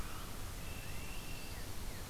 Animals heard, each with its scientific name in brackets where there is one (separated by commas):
Northern Cardinal (Cardinalis cardinalis), Red-winged Blackbird (Agelaius phoeniceus)